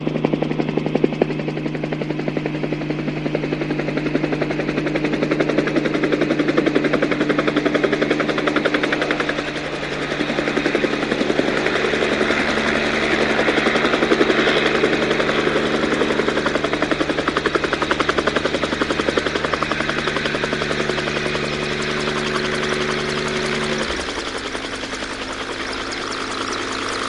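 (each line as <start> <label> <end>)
0.0 A helicopter flies closer and then stops outdoors. 27.1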